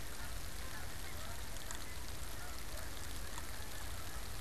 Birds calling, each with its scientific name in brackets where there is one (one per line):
unidentified bird